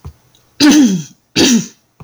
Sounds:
Throat clearing